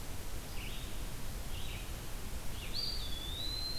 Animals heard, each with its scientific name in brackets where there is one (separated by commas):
Red-eyed Vireo (Vireo olivaceus), Eastern Wood-Pewee (Contopus virens)